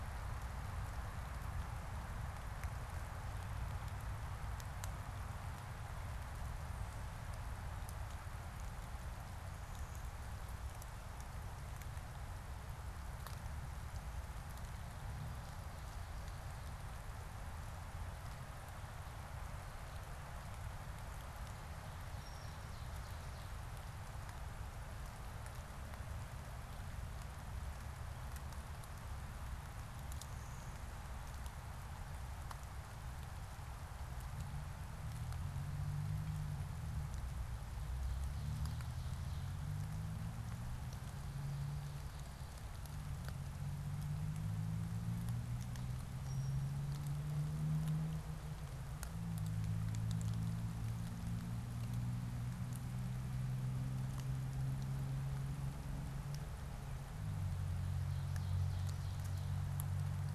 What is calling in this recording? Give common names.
unidentified bird